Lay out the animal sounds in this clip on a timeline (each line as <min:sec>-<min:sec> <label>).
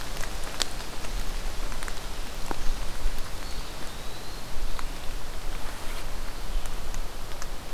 0:03.2-0:04.6 Eastern Wood-Pewee (Contopus virens)